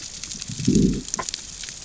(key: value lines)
label: biophony, growl
recorder: SoundTrap 600 or HydroMoth